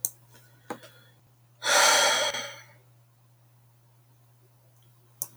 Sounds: Sigh